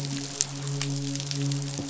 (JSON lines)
{"label": "biophony, midshipman", "recorder": "SoundTrap 500"}